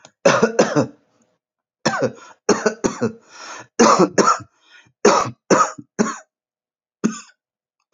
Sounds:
Cough